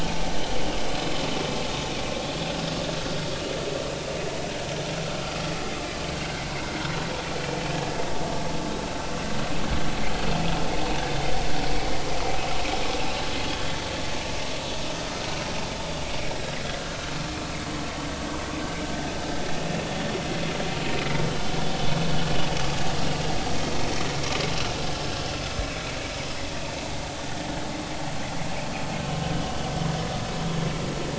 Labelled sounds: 6.2	6.4	vessel noise, 1.5 to 1.7 kHz
25.0	25.3	vessel noise, 1.6 to 1.7 kHz

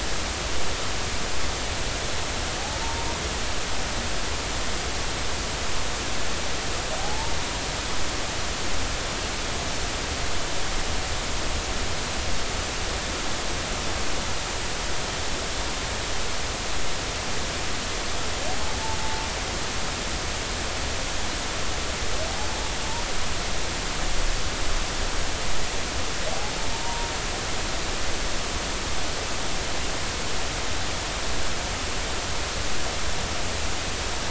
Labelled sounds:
2.8	3.1	humpback whale, 0.86 to 1.0 kHz
7.0	7.3	humpback whale, 0.80 to 1.1 kHz
26.7	27.1	humpback whale, 0.86 to 0.99 kHz

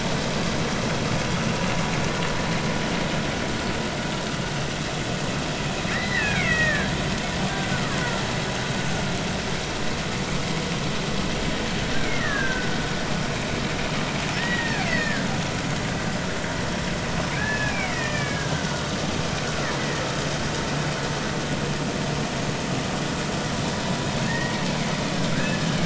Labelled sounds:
5.9	6.9	killer whale, Bigg's (transient), 1.4 to 2.8 kHz
7.5	7.8	killer whale, Bigg's (transient), 1.4 to 1.6 kHz
12.2	12.7	killer whale, Bigg's (transient), 1.4 to 2.0 kHz
14.4	15.3	killer whale, Bigg's (transient), 1.5 to 2.4 kHz
17.4	18.9	killer whale, Bigg's (transient), 1.3 to 2.7 kHz
19.8	20.0	killer whale, Bigg's (transient), 1.8 to 2.1 kHz
24.3	24.5	killer whale, Bigg's (transient), 1.7 to 2.0 kHz
25.3	25.7	killer whale, Bigg's (transient), 1.5 to 1.8 kHz

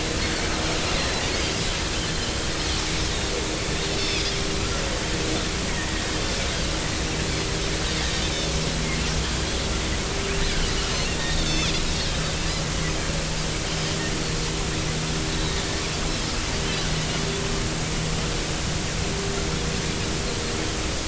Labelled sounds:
1.0	1.2	Pacific white-sided dolphin, 3.9 to 4.2 kHz
4.0	4.3	Pacific white-sided dolphin, 3.2 to 5.4 kHz
8.3	8.5	Pacific white-sided dolphin, 3.5 to 3.9 kHz
11.2	11.7	Pacific white-sided dolphin, 2.4 to 3.8 kHz
15.3	15.6	Pacific white-sided dolphin, 3.7 to 4.0 kHz

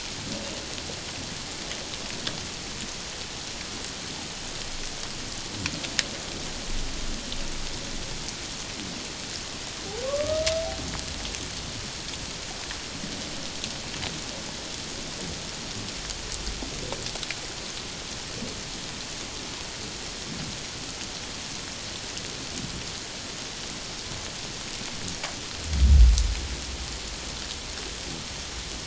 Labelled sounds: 10.1	10.4	humpback whale, 1.0 to 1.3 kHz

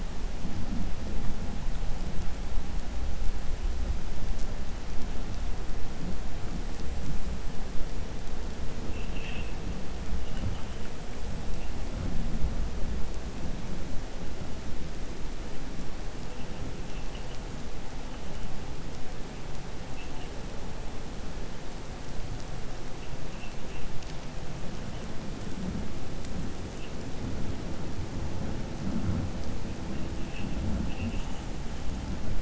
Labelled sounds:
30.8	31.4	vessel noise, 2.5 to 3.4 kHz

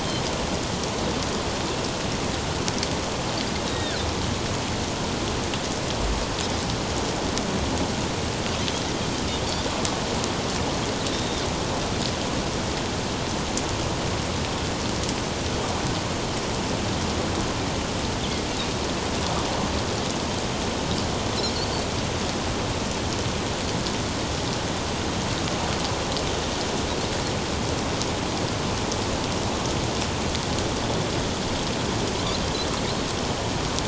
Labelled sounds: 3.7	4.0	Pacific white-sided dolphin, 1.4 to 3.9 kHz
8.6	8.9	Pacific white-sided dolphin, 3.8 to 4.2 kHz
11.1	11.4	Pacific white-sided dolphin, 3.5 to 3.8 kHz

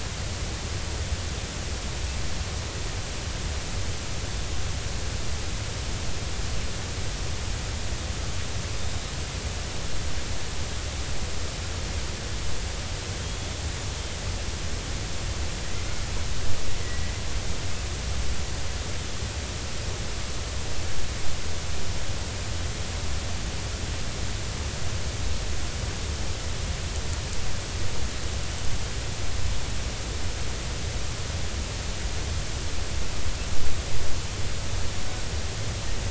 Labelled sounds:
13.2	13.5	killer whale, Bigg's (transient), 3.1 to 3.5 kHz
16.8	17.1	killer whale, Bigg's (transient), 1.9 to 2.1 kHz

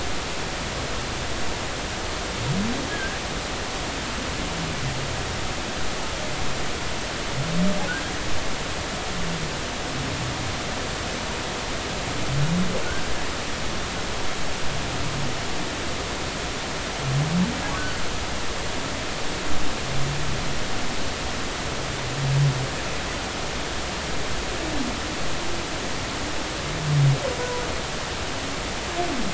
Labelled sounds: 2.9	3.2	humpback whale, 1.5 to 1.7 kHz
7.9	8.1	humpback whale, 1.4 to 1.7 kHz

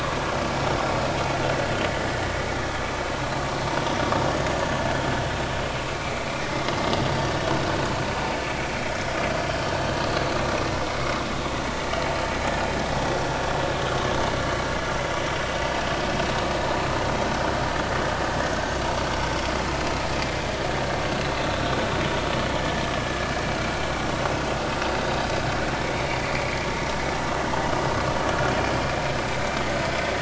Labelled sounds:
11.7	12.0	vessel noise, 1.8 to 2.0 kHz
18.5	18.8	vessel noise, 1.4 to 1.6 kHz

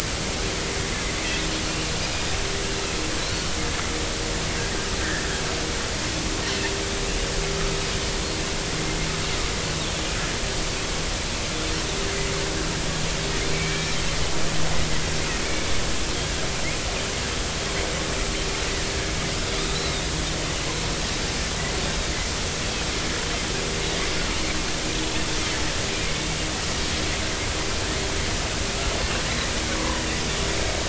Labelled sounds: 1.6	1.9	Pacific white-sided dolphin, 2.7 to 3.0 kHz
6.0	6.3	Pacific white-sided dolphin, 1.5 to 1.9 kHz
13.5	14.0	Pacific white-sided dolphin, 2.2 to 2.4 kHz
19.7	20.0	Pacific white-sided dolphin, 3.6 to 4.1 kHz
29.8	30.0	Pacific white-sided dolphin, 0.93 to 1.2 kHz

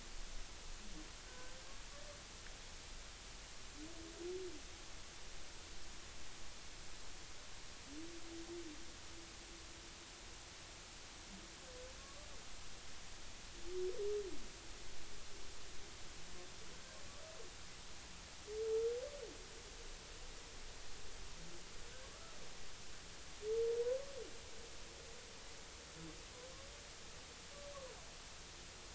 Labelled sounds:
1.3	1.5	humpback whale, 1.5 to 1.6 kHz
12.0	12.3	humpback whale, 1.1 to 1.2 kHz
22.0	22.4	humpback whale, 1.1 to 1.4 kHz

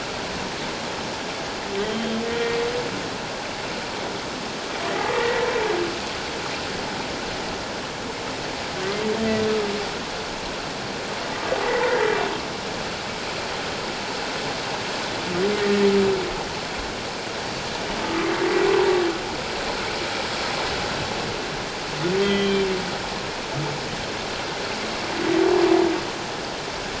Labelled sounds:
1.8	2.2	humpback whale, 3.1 to 3.3 kHz
4.9	5.4	humpback whale, 1.1 to 2.2 kHz
11.6	12.0	humpback whale, 1.8 to 2.1 kHz
15.6	15.9	humpback whale, 1.8 to 2.0 kHz
18.0	18.3	humpback whale, 1.0 to 1.3 kHz
22.2	22.7	humpback whale, 1.9 to 3.3 kHz

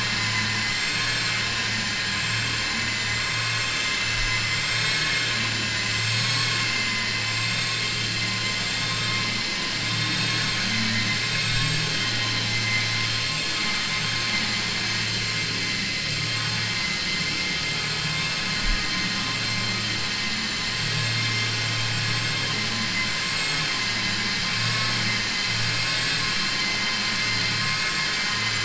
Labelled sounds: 0.1	0.6	vessel noise, 0.88 to 2.9 kHz

